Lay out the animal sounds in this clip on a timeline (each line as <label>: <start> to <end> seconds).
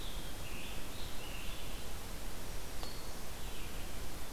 Scarlet Tanager (Piranga olivacea): 0.0 to 1.7 seconds
Red-eyed Vireo (Vireo olivaceus): 0.0 to 4.3 seconds
Black-throated Green Warbler (Setophaga virens): 2.4 to 3.2 seconds